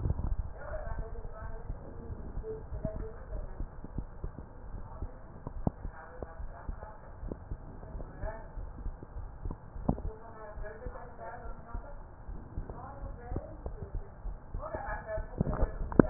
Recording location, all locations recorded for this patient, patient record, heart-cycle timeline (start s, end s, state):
aortic valve (AV)
aortic valve (AV)+pulmonary valve (PV)+tricuspid valve (TV)+mitral valve (MV)
#Age: Adolescent
#Sex: Female
#Height: 153.0 cm
#Weight: 56.1 kg
#Pregnancy status: False
#Murmur: Absent
#Murmur locations: nan
#Most audible location: nan
#Systolic murmur timing: nan
#Systolic murmur shape: nan
#Systolic murmur grading: nan
#Systolic murmur pitch: nan
#Systolic murmur quality: nan
#Diastolic murmur timing: nan
#Diastolic murmur shape: nan
#Diastolic murmur grading: nan
#Diastolic murmur pitch: nan
#Diastolic murmur quality: nan
#Outcome: Normal
#Campaign: 2015 screening campaign
0.00	1.10	unannotated
1.10	1.40	diastole
1.40	1.52	S1
1.52	1.66	systole
1.66	1.80	S2
1.80	2.08	diastole
2.08	2.18	S1
2.18	2.34	systole
2.34	2.46	S2
2.46	2.68	diastole
2.68	2.82	S1
2.82	2.94	systole
2.94	3.08	S2
3.08	3.30	diastole
3.30	3.46	S1
3.46	3.58	systole
3.58	3.68	S2
3.68	3.94	diastole
3.94	4.06	S1
4.06	4.22	systole
4.22	4.36	S2
4.36	4.66	diastole
4.66	4.82	S1
4.82	5.00	systole
5.00	5.14	S2
5.14	5.44	diastole
5.44	5.62	S1
5.62	5.82	systole
5.82	5.92	S2
5.92	6.38	diastole
6.38	6.48	S1
6.48	6.65	systole
6.65	6.78	S2
6.78	7.22	diastole
7.22	7.36	S1
7.36	7.50	systole
7.50	7.60	S2
7.60	7.88	diastole
7.88	8.06	S1
8.06	8.22	systole
8.22	8.34	S2
8.34	8.58	diastole
8.58	8.70	S1
8.70	8.84	systole
8.84	8.96	S2
8.96	9.16	diastole
9.16	9.30	S1
9.30	9.44	systole
9.44	9.56	S2
9.56	9.75	diastole
9.75	9.87	S1
9.87	10.04	systole
10.04	10.15	S2
10.15	10.58	diastole
10.58	10.68	S1
10.68	10.82	systole
10.82	10.96	S2
10.96	11.22	diastole
11.22	11.32	S1
11.32	11.46	systole
11.46	11.56	S2
11.56	11.74	diastole
11.74	11.84	S1
11.84	11.98	systole
11.98	12.04	S2
12.04	12.30	diastole
12.30	12.40	S1
12.40	12.56	systole
12.56	12.70	S2
12.70	13.00	diastole
13.00	13.16	S1
13.16	13.30	systole
13.30	13.44	S2
13.44	13.63	diastole
13.63	13.80	S1
13.80	13.92	systole
13.92	14.04	S2
14.04	14.26	diastole
14.26	14.38	S1
14.38	14.52	systole
14.52	14.66	S2
14.66	14.86	diastole
14.86	16.10	unannotated